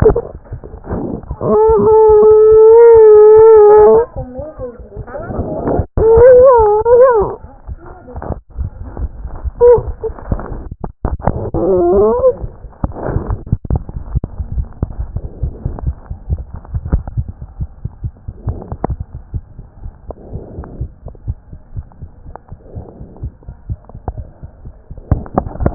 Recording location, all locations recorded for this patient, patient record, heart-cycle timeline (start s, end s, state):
mitral valve (MV)
mitral valve (MV)
#Age: Child
#Sex: Female
#Height: 89.0 cm
#Weight: 11.8 kg
#Pregnancy status: False
#Murmur: Absent
#Murmur locations: nan
#Most audible location: nan
#Systolic murmur timing: nan
#Systolic murmur shape: nan
#Systolic murmur grading: nan
#Systolic murmur pitch: nan
#Systolic murmur quality: nan
#Diastolic murmur timing: nan
#Diastolic murmur shape: nan
#Diastolic murmur grading: nan
#Diastolic murmur pitch: nan
#Diastolic murmur quality: nan
#Outcome: Normal
#Campaign: 2014 screening campaign
0.00	17.60	unannotated
17.60	17.70	S1
17.70	17.84	systole
17.84	17.91	S2
17.91	18.04	diastole
18.04	18.14	S1
18.14	18.24	systole
18.24	18.32	S2
18.32	18.48	diastole
18.48	18.58	S1
18.58	18.71	systole
18.71	18.78	S2
18.78	18.90	diastole
18.90	18.98	S1
18.98	19.12	systole
19.12	19.20	S2
19.20	19.34	diastole
19.34	19.44	S1
19.44	19.56	systole
19.56	19.66	S2
19.66	19.83	diastole
19.83	19.92	S1
19.92	20.06	systole
20.06	20.16	S2
20.16	20.34	diastole
20.34	20.42	S1
20.42	20.56	systole
20.56	20.66	S2
20.66	20.80	diastole
20.80	20.90	S1
20.90	21.04	systole
21.04	21.14	S2
21.14	21.28	diastole
21.28	21.38	S1
21.38	21.50	systole
21.50	21.60	S2
21.60	21.78	diastole
21.78	21.86	S1
21.86	22.00	systole
22.00	22.10	S2
22.10	22.28	diastole
22.28	25.74	unannotated